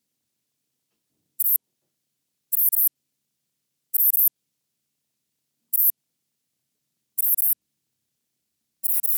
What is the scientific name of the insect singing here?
Ephippiger diurnus